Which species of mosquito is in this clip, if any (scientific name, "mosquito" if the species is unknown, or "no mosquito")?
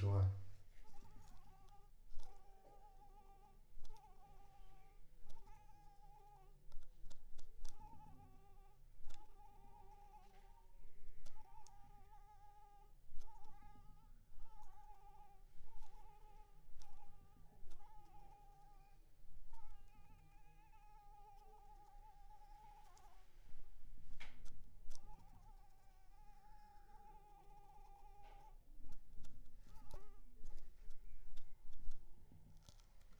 Anopheles arabiensis